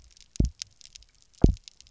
{"label": "biophony, double pulse", "recorder": "SoundTrap 300"}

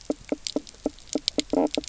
{"label": "biophony, knock croak", "recorder": "SoundTrap 300"}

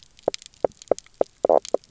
{"label": "biophony, knock croak", "recorder": "SoundTrap 300"}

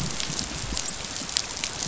{"label": "biophony, dolphin", "recorder": "SoundTrap 500"}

